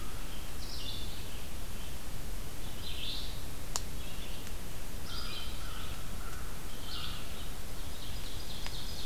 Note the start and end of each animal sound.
0.0s-9.1s: Ovenbird (Seiurus aurocapilla)
4.9s-7.3s: American Crow (Corvus brachyrhynchos)

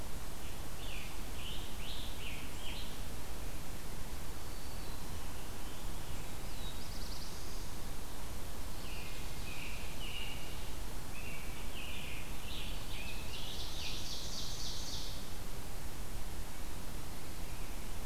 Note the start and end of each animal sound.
0.3s-2.8s: Scarlet Tanager (Piranga olivacea)
4.2s-5.3s: Black-throated Green Warbler (Setophaga virens)
5.0s-6.7s: Scarlet Tanager (Piranga olivacea)
6.2s-7.7s: Black-throated Blue Warbler (Setophaga caerulescens)
8.7s-10.6s: American Robin (Turdus migratorius)
11.0s-12.3s: American Robin (Turdus migratorius)
12.1s-14.3s: Scarlet Tanager (Piranga olivacea)
13.3s-15.3s: Ovenbird (Seiurus aurocapilla)

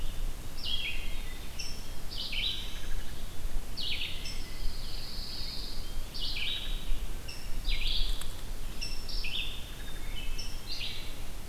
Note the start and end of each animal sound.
0.0s-11.5s: Red-eyed Vireo (Vireo olivaceus)
1.6s-1.7s: Rose-breasted Grosbeak (Pheucticus ludovicianus)
2.0s-3.0s: Black-throated Blue Warbler (Setophaga caerulescens)
2.6s-3.4s: Wood Thrush (Hylocichla mustelina)
4.0s-4.7s: Blue Jay (Cyanocitta cristata)
4.1s-6.2s: Pine Warbler (Setophaga pinus)
6.3s-6.7s: Wood Thrush (Hylocichla mustelina)
7.3s-7.5s: Rose-breasted Grosbeak (Pheucticus ludovicianus)
8.8s-9.1s: Rose-breasted Grosbeak (Pheucticus ludovicianus)
9.6s-10.2s: Wood Thrush (Hylocichla mustelina)
9.7s-10.8s: Black-capped Chickadee (Poecile atricapillus)
10.4s-10.6s: Rose-breasted Grosbeak (Pheucticus ludovicianus)

